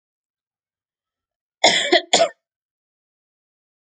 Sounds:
Cough